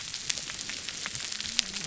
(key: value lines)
label: biophony
recorder: SoundTrap 300